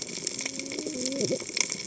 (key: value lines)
label: biophony, cascading saw
recorder: HydroMoth